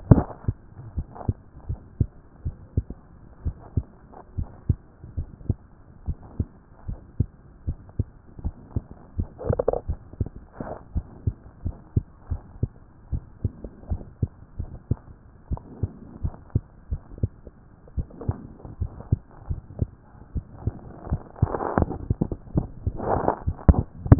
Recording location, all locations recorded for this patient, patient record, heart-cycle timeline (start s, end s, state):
mitral valve (MV)
aortic valve (AV)+pulmonary valve (PV)+tricuspid valve (TV)+mitral valve (MV)
#Age: Child
#Sex: Female
#Height: 124.0 cm
#Weight: 22.9 kg
#Pregnancy status: False
#Murmur: Absent
#Murmur locations: nan
#Most audible location: nan
#Systolic murmur timing: nan
#Systolic murmur shape: nan
#Systolic murmur grading: nan
#Systolic murmur pitch: nan
#Systolic murmur quality: nan
#Diastolic murmur timing: nan
#Diastolic murmur shape: nan
#Diastolic murmur grading: nan
#Diastolic murmur pitch: nan
#Diastolic murmur quality: nan
#Outcome: Normal
#Campaign: 2014 screening campaign
0.00	0.96	unannotated
0.96	1.06	S1
1.06	1.26	systole
1.26	1.36	S2
1.36	1.68	diastole
1.68	1.80	S1
1.80	1.98	systole
1.98	2.08	S2
2.08	2.44	diastole
2.44	2.56	S1
2.56	2.76	systole
2.76	2.86	S2
2.86	3.44	diastole
3.44	3.56	S1
3.56	3.76	systole
3.76	3.86	S2
3.86	4.36	diastole
4.36	4.48	S1
4.48	4.68	systole
4.68	4.78	S2
4.78	5.16	diastole
5.16	5.28	S1
5.28	5.48	systole
5.48	5.58	S2
5.58	6.06	diastole
6.06	6.18	S1
6.18	6.38	systole
6.38	6.48	S2
6.48	6.88	diastole
6.88	6.98	S1
6.98	7.18	systole
7.18	7.28	S2
7.28	7.66	diastole
7.66	7.78	S1
7.78	7.98	systole
7.98	8.08	S2
8.08	8.44	diastole
8.44	8.54	S1
8.54	8.74	systole
8.74	8.84	S2
8.84	9.18	diastole
9.18	9.28	S1
9.28	9.46	systole
9.46	9.58	S2
9.58	9.88	diastole
9.88	9.98	S1
9.98	10.18	systole
10.18	10.30	S2
10.30	10.94	diastole
10.94	11.06	S1
11.06	11.26	systole
11.26	11.34	S2
11.34	11.64	diastole
11.64	11.76	S1
11.76	11.94	systole
11.94	12.04	S2
12.04	12.30	diastole
12.30	12.42	S1
12.42	12.60	systole
12.60	12.70	S2
12.70	13.12	diastole
13.12	13.24	S1
13.24	13.42	systole
13.42	13.52	S2
13.52	13.90	diastole
13.90	14.02	S1
14.02	14.20	systole
14.20	14.30	S2
14.30	14.60	diastole
14.60	14.70	S1
14.70	14.90	systole
14.90	14.98	S2
14.98	15.50	diastole
15.50	15.62	S1
15.62	15.82	systole
15.82	15.92	S2
15.92	16.22	diastole
16.22	16.34	S1
16.34	16.54	systole
16.54	16.62	S2
16.62	16.90	diastole
16.90	17.02	S1
17.02	17.22	systole
17.22	17.30	S2
17.30	17.96	diastole
17.96	18.08	S1
18.08	18.26	systole
18.26	18.38	S2
18.38	18.80	diastole
18.80	18.90	S1
18.90	19.10	systole
19.10	19.20	S2
19.20	19.48	diastole
19.48	19.60	S1
19.60	19.80	systole
19.80	19.90	S2
19.90	20.34	diastole
20.34	20.46	S1
20.46	20.64	systole
20.64	20.74	S2
20.74	21.10	diastole
21.10	24.19	unannotated